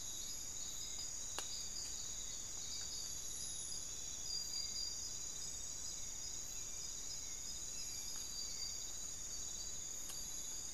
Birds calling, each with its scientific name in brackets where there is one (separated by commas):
Hauxwell's Thrush (Turdus hauxwelli)